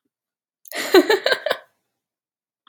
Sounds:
Laughter